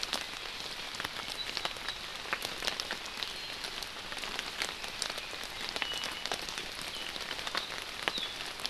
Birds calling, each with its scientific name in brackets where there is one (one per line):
Iiwi (Drepanis coccinea)